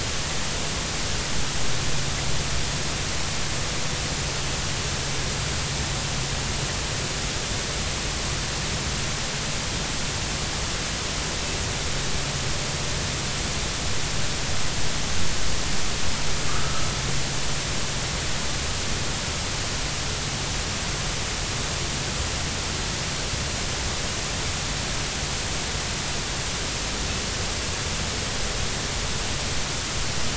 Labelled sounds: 16.5	16.9	humpback whale, 1.1 to 1.4 kHz

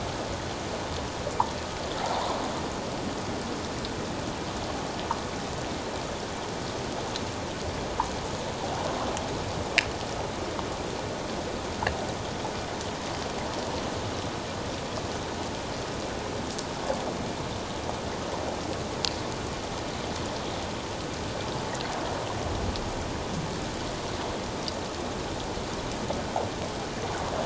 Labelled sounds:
2.0	2.3	water noise, 0.78 to 1.1 kHz

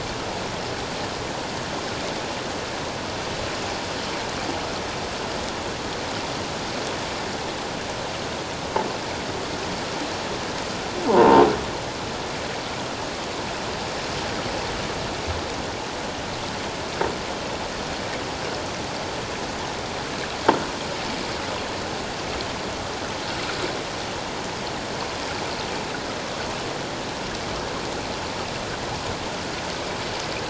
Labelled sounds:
11.0	11.5	croaking sound likely from a nearby submerged object, 0.78 to 1.1 kHz

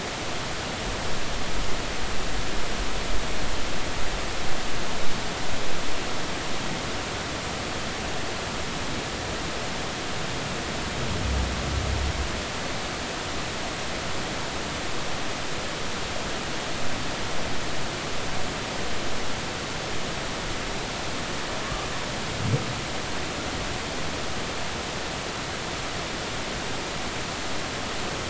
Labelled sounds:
21.6	21.9	humpback whale, 1.1 to 1.2 kHz

